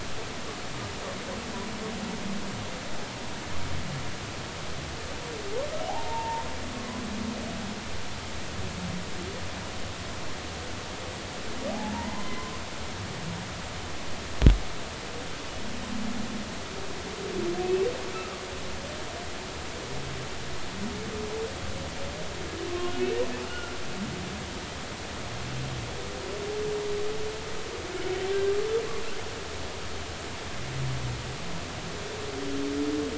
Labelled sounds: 5.9	7.0	humpback whale, 0.80 to 1.1 kHz
13.1	13.5	humpback whale, 0.83 to 1.1 kHz
17.6	17.9	humpback whale, 2.5 to 2.7 kHz
22.7	23.7	humpback whale, 0.99 to 1.5 kHz

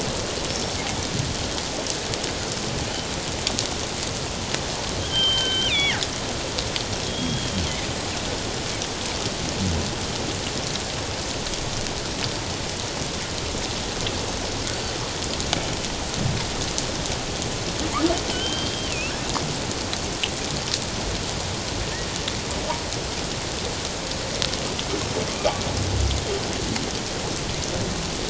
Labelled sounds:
0.5	0.8	killer whale, northern resident, G clan, 5.2 to 5.5 kHz
5.0	6.0	killer whale, northern resident, G clan, 1.4 to 4.0 kHz
7.1	7.6	killer whale, northern resident, G clan, 3.1 to 3.4 kHz
18.3	18.9	killer whale, northern resident, G clan, 1.4 to 3.3 kHz
24.9	25.2	killer whale, northern resident, G clan, 5.2 to 5.4 kHz

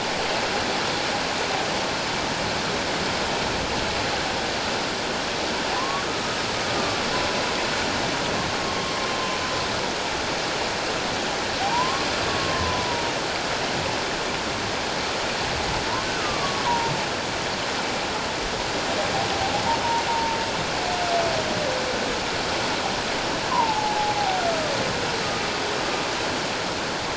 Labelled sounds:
5.7	7.0	humpback whale, 0.97 to 1.4 kHz
11.6	12.9	humpback whale, 0.78 to 1.2 kHz
16.0	16.9	humpback whale, 0.88 to 1.6 kHz
20.1	20.4	humpback whale, 0.84 to 1.0 kHz
23.5	24.2	humpback whale, 0.78 to 1.2 kHz

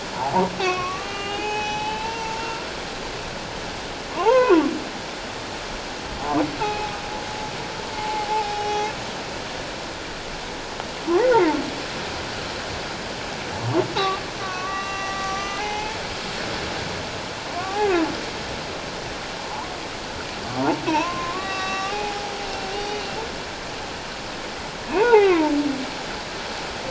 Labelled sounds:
0.1	2.6	humpback whale, 0.78 to 6.0 kHz
4.2	4.7	humpback whale, 0.78 to 2.6 kHz
6.6	7.0	humpback whale, 0.78 to 2.7 kHz
8.0	9.0	humpback whale, 0.78 to 5.9 kHz
13.9	16.0	humpback whale, 0.78 to 6.0 kHz
17.6	17.9	humpback whale, 0.78 to 0.91 kHz
20.9	23.2	humpback whale, 0.78 to 5.9 kHz
25.0	25.5	humpback whale, 0.78 to 2.8 kHz

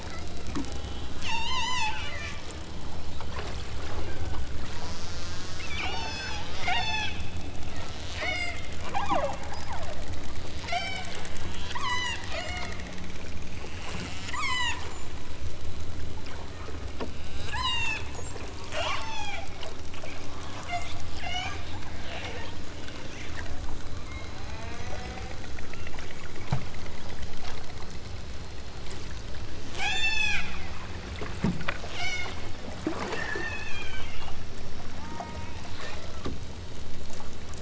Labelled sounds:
0.0	0.6	killer whale, southern Alaska resident, 0.94 to 5.8 kHz
1.2	2.5	killer whale, southern Alaska resident, 0.55 to 8.0 kHz
4.0	4.4	killer whale, southern Alaska resident, 1.2 to 3.7 kHz
5.7	7.2	killer whale, southern Alaska resident, 0.32 to 8.0 kHz
8.0	10.1	killer whale, southern Alaska resident, 0.28 to 8.0 kHz
10.6	11.1	killer whale, southern Alaska resident, 0.28 to 8.0 kHz
11.7	12.8	killer whale, southern Alaska resident, 0.37 to 8.0 kHz
14.3	14.8	killer whale, southern Alaska resident, 0.64 to 8.0 kHz
17.2	18.0	killer whale, southern Alaska resident, 0.51 to 8.0 kHz
18.6	19.4	killer whale, southern Alaska resident, 0.28 to 8.0 kHz
20.6	21.6	killer whale, southern Alaska resident, 0.23 to 7.9 kHz
24.3	25.4	killer whale, southern Alaska resident, 0.43 to 4.2 kHz
29.7	30.5	killer whale, southern Alaska resident, 0.46 to 8.0 kHz
31.9	32.4	killer whale, southern Alaska resident, 0.37 to 8.0 kHz
33.1	34.3	killer whale, southern Alaska resident, 1.3 to 8.0 kHz
34.9	36.2	killer whale, southern Alaska resident, 0.32 to 2.4 kHz

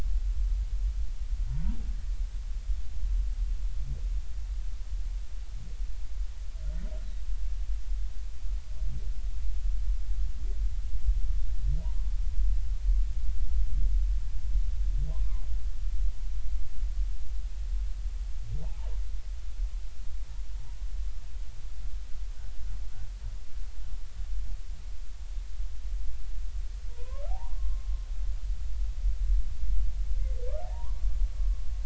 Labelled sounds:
11.8	12.2	humpback whale, 0.80 to 1.2 kHz
15.1	15.4	humpback whale, 0.80 to 1.3 kHz
18.6	18.9	humpback whale, 0.80 to 1.1 kHz
26.9	27.9	humpback whale, 0.80 to 1.2 kHz
30.6	31.1	humpback whale, 0.80 to 1.2 kHz

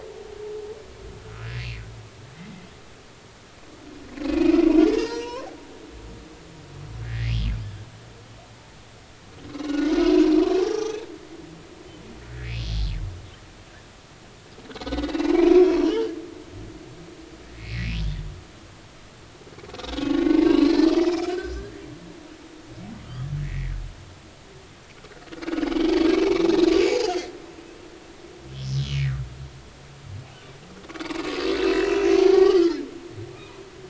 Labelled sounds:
1.2	1.5	humpback whale, 1.2 to 1.5 kHz
4.2	4.6	humpback whale, 2.3 to 2.6 kHz
4.9	5.5	humpback whale, 0.86 to 5.9 kHz
7.0	7.3	humpback whale, 1.6 to 2.2 kHz
9.5	11.0	humpback whale, 0.80 to 6.3 kHz
14.7	16.1	humpback whale, 0.86 to 3.6 kHz
17.5	17.9	humpback whale, 1.9 to 2.8 kHz
20.6	21.6	humpback whale, 1.4 to 4.4 kHz
23.0	23.7	humpback whale, 1.2 to 3.5 kHz
26.1	26.3	humpback whale, 2.5 to 2.7 kHz
26.7	27.3	humpback whale, 0.80 to 5.0 kHz
28.6	28.9	humpback whale, 5.1 to 5.3 kHz
31.6	32.6	humpback whale, 0.80 to 2.8 kHz

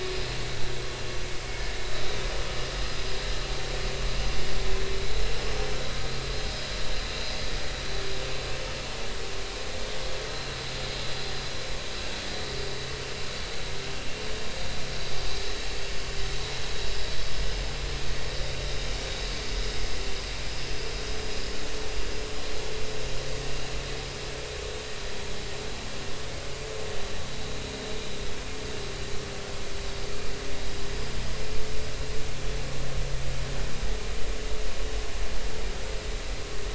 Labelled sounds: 1.7	2.1	vessel noise, 3.8 to 4.0 kHz

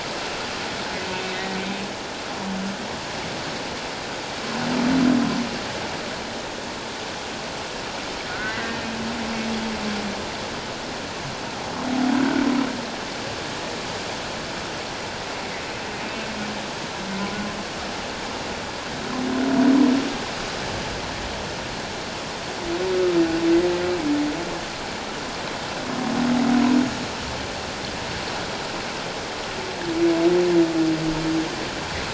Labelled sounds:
1.3	1.5	humpback whale, 3.6 to 3.8 kHz
8.3	8.9	humpback whale, 1.3 to 2.1 kHz

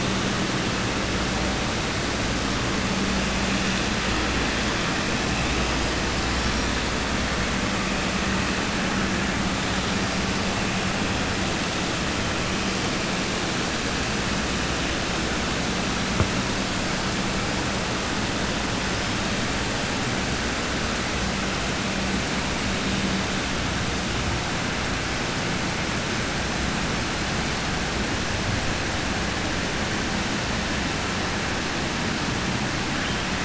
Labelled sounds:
6.3	6.6	killer whale, southern resident, 4.7 to 5.7 kHz

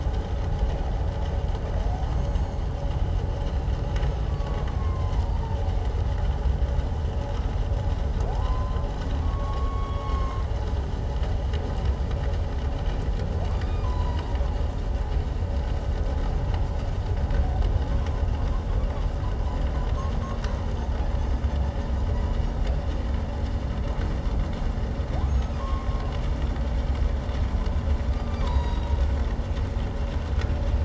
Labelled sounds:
2.1	2.6	humpback whale, 6.2 to 6.6 kHz
4.3	5.4	humpback whale, 0.88 to 2.2 kHz
8.3	10.5	humpback whale, 0.78 to 3.4 kHz
13.5	14.2	humpback whale, 0.81 to 4.1 kHz
25.3	25.9	humpback whale, 0.97 to 6.7 kHz
28.1	28.9	humpback whale, 0.88 to 4.9 kHz

